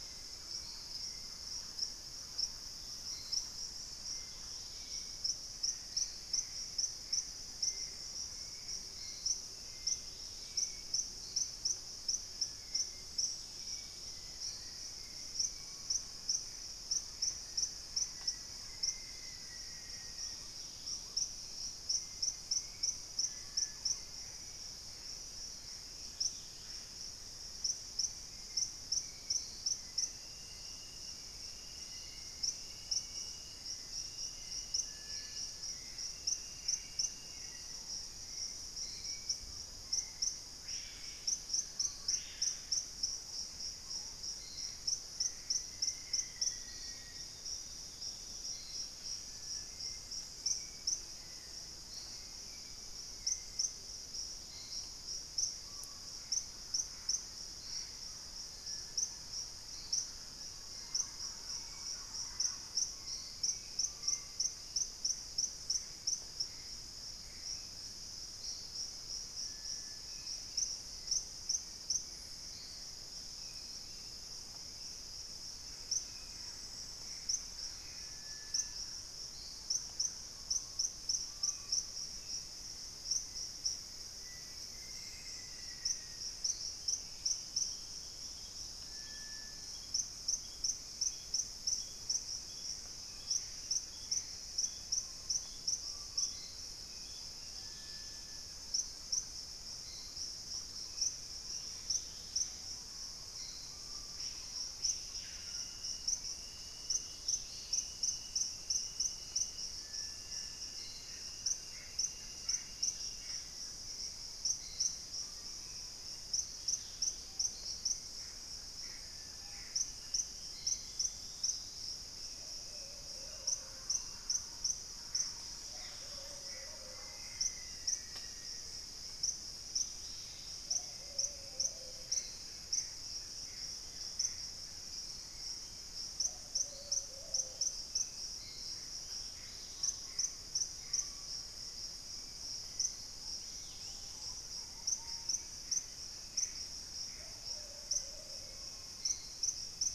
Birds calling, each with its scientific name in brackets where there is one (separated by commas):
Gray Antbird (Cercomacra cinerascens), Dusky-throated Antshrike (Thamnomanes ardesiacus), Dusky-capped Greenlet (Pachysylvia hypoxantha), Screaming Piha (Lipaugus vociferans), Purple-throated Fruitcrow (Querula purpurata), Thrush-like Wren (Campylorhynchus turdinus), Black-capped Becard (Pachyramphus marginatus), unidentified bird, Black-faced Antthrush (Formicarius analis), Spot-winged Antshrike (Pygiptila stellaris), Ruddy Pigeon (Patagioenas subvinacea), Hauxwell's Thrush (Turdus hauxwelli), Plumbeous Pigeon (Patagioenas plumbea), Amazonian Motmot (Momotus momota)